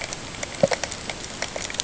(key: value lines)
label: ambient
recorder: HydroMoth